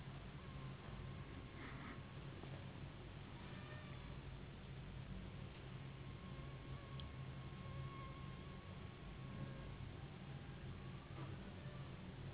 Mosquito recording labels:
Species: Anopheles gambiae s.s.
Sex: female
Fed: unfed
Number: one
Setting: insect culture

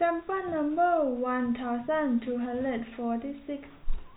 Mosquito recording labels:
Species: no mosquito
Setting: cup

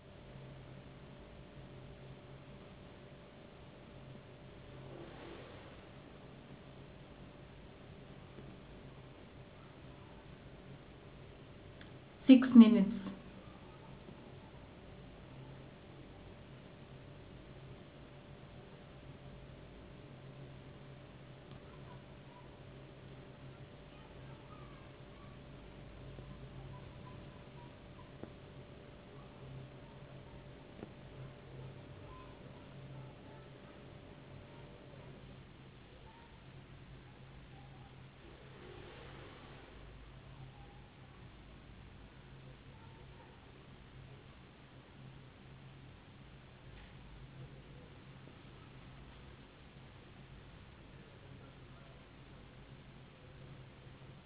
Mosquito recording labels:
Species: no mosquito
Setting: insect culture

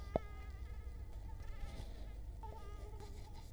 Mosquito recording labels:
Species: Culex quinquefasciatus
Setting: cup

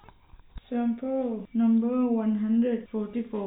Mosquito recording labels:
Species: no mosquito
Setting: cup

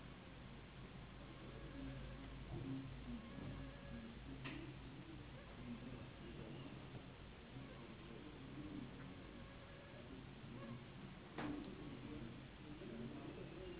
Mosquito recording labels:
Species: Anopheles gambiae s.s.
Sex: female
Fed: unfed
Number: one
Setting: insect culture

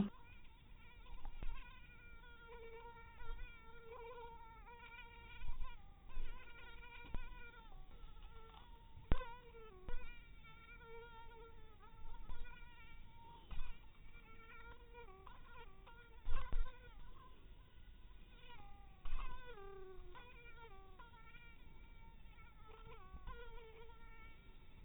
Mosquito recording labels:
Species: mosquito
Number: one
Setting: cup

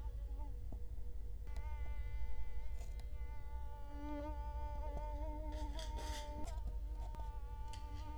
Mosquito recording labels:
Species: Culex quinquefasciatus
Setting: cup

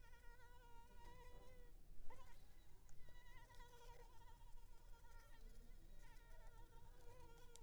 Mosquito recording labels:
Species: Anopheles arabiensis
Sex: female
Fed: blood-fed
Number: one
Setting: cup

